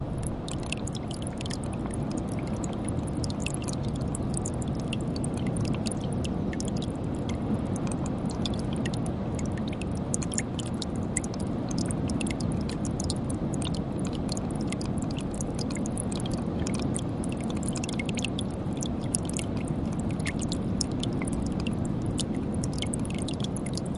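Water trickles continuously but unevenly. 0:00.0 - 0:24.0

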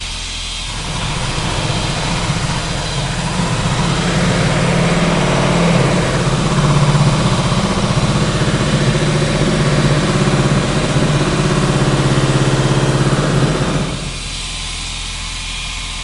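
Buzzing sounds of construction in the distance. 0:00.0 - 0:16.0
A chainsaw buzzes loudly in the background. 0:01.1 - 0:14.0

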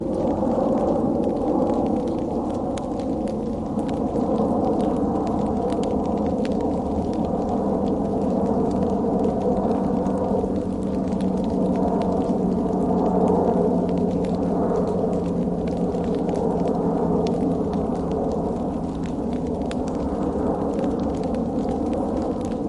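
A continuous loud airplane engine. 0:00.0 - 0:22.7
Soft, continuous crackling. 0:00.0 - 0:22.7

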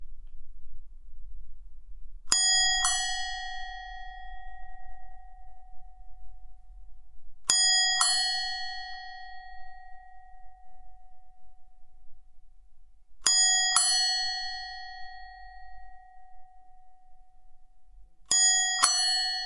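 Two handbells ring nearby, the first stronger than the second. 0:02.2 - 0:04.2
Two handbells ring nearby, the first stronger than the second. 0:07.3 - 0:09.3
Two handbells ring nearby, the first stronger than the second. 0:12.9 - 0:14.9
Two nearby handbells ring, the second ringing stronger than the first. 0:18.2 - 0:19.5

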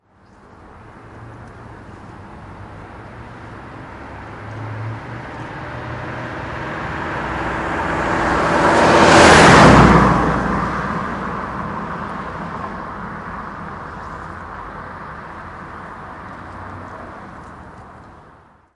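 A distant car hum gradually swells into a loud roar and then fades away. 0:00.0 - 0:16.0

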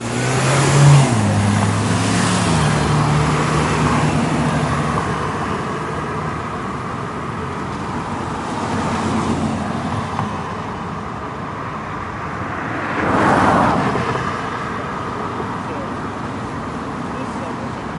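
Cars repeatedly pass by on the road. 0:00.0 - 0:18.0
People are conversing in the distance near a road. 0:00.0 - 0:18.0

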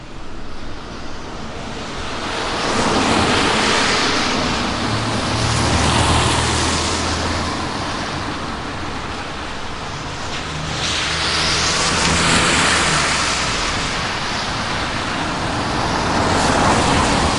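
Cars driving on a wet road. 0:00.0 - 0:17.4
White noise is heard in the background of an outdoor environment. 0:00.0 - 0:17.4
A car drives past. 0:00.0 - 0:08.3
A car drives past. 0:10.3 - 0:14.6
A car drives past. 0:15.7 - 0:17.4

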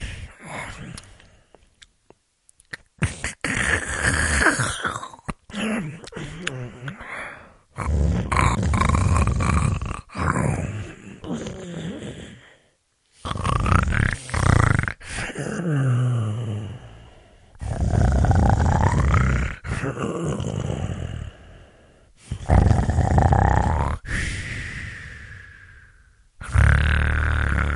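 Loud, heavy, muffled breathing. 0:00.0 - 0:01.8
A person is quietly chewing repetitively. 0:01.0 - 0:02.9
Deep, repetitive snoring from a sleeping person. 0:03.0 - 0:27.8
A person is quietly chewing repetitively. 0:06.2 - 0:07.6
Loud, heavy, muffled breathing. 0:24.0 - 0:26.4

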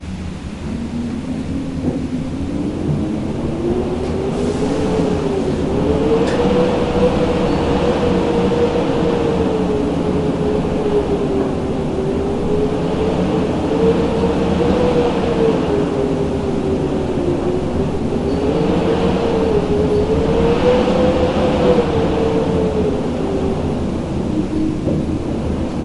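Wind blowing. 0:00.0 - 0:25.8
Wind howls, gradually increasing. 0:00.1 - 0:05.8
Glass clinks. 0:07.3 - 0:08.5
Glass clinks repeatedly. 0:17.8 - 0:21.2

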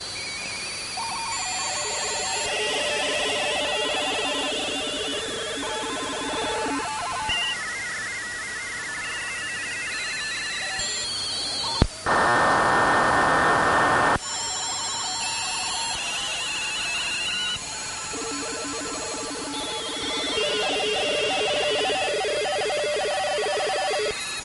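A very loud shortwave radio transmission. 0:12.1 - 0:14.2

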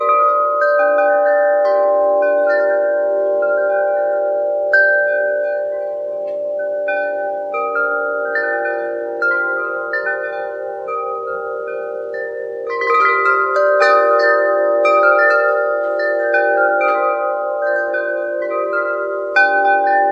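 Chimes playing music in the wind. 0:00.0 - 0:20.1

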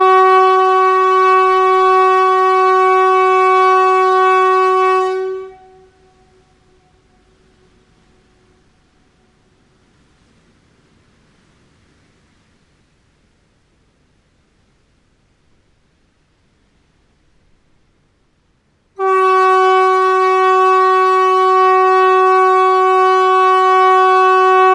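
A siren sounds loudly and continuously with a reverberating echo. 0:00.0 - 0:07.4
Quiet white noise. 0:07.4 - 0:19.0
A siren sounds continuously and loudly. 0:19.0 - 0:24.7

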